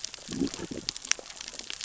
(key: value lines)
label: biophony, growl
recorder: SoundTrap 600 or HydroMoth